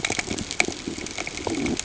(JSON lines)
{"label": "ambient", "recorder": "HydroMoth"}